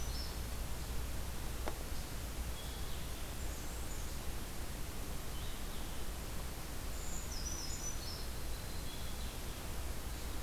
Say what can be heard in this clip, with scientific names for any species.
Certhia americana, Vireo solitarius